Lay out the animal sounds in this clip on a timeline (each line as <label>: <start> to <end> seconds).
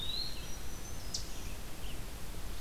Red-eyed Vireo (Vireo olivaceus): 0.0 to 2.6 seconds
Black-throated Green Warbler (Setophaga virens): 0.1 to 1.5 seconds
Eastern Chipmunk (Tamias striatus): 1.1 to 2.6 seconds